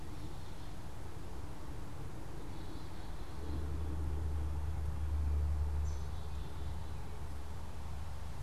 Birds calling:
Black-capped Chickadee (Poecile atricapillus)

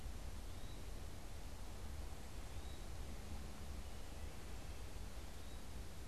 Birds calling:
Eastern Wood-Pewee (Contopus virens)

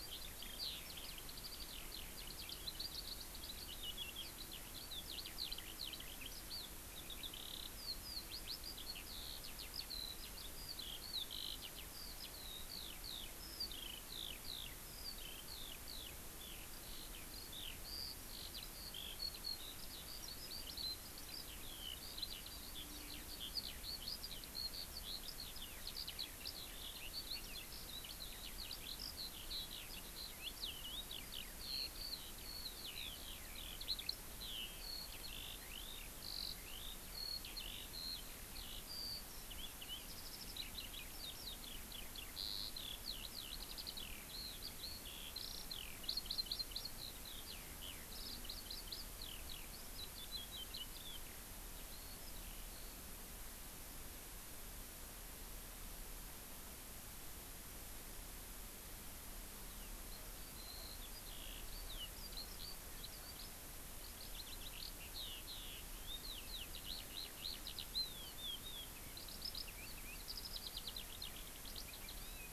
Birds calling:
Eurasian Skylark (Alauda arvensis)

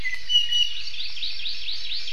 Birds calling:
Hawaii Amakihi (Chlorodrepanis virens)
Iiwi (Drepanis coccinea)

